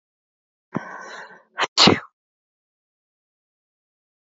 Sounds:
Sneeze